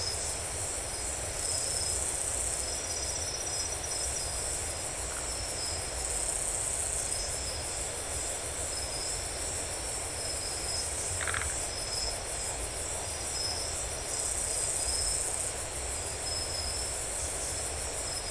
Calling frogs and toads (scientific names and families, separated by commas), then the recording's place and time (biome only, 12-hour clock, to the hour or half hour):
Phyllomedusa distincta (Hylidae)
Atlantic Forest, 12:30am